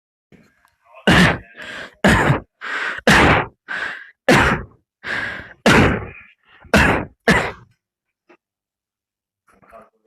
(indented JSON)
{
  "expert_labels": [
    {
      "quality": "good",
      "cough_type": "dry",
      "dyspnea": false,
      "wheezing": false,
      "stridor": false,
      "choking": false,
      "congestion": false,
      "nothing": true,
      "diagnosis": "COVID-19",
      "severity": "severe"
    }
  ],
  "age": 18,
  "gender": "female",
  "respiratory_condition": true,
  "fever_muscle_pain": false,
  "status": "COVID-19"
}